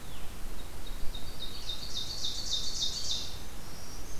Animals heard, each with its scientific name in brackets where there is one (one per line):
Ovenbird (Seiurus aurocapilla)
Red-eyed Vireo (Vireo olivaceus)
Black-throated Green Warbler (Setophaga virens)